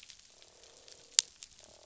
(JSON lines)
{"label": "biophony, croak", "recorder": "SoundTrap 500"}